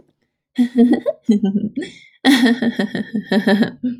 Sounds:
Laughter